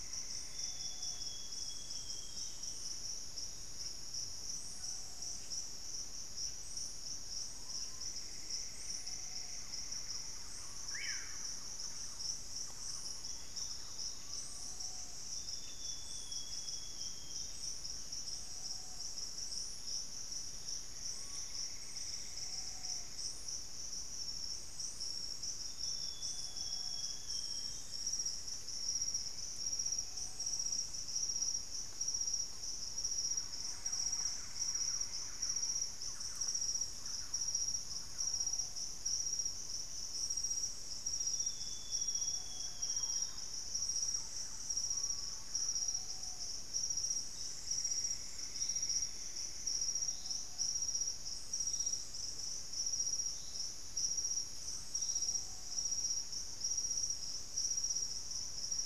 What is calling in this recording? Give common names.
Screaming Piha, Plumbeous Antbird, Amazonian Grosbeak, Blue-headed Parrot, Thrush-like Wren, Olivaceous Woodcreeper, Cinnamon-rumped Foliage-gleaner, Piratic Flycatcher